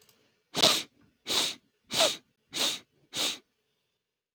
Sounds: Sniff